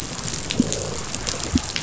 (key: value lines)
label: biophony
recorder: SoundTrap 500